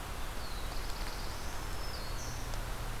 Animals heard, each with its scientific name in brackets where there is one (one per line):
Black-throated Green Warbler (Setophaga virens)
Black-throated Blue Warbler (Setophaga caerulescens)